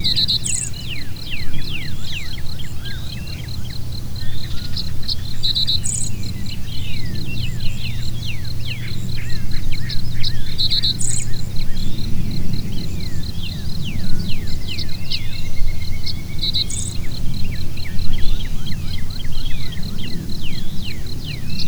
Are multiple types of birds heard?
yes